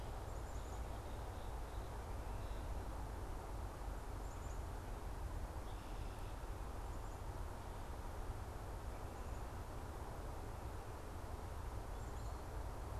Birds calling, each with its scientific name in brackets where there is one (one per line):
Black-capped Chickadee (Poecile atricapillus)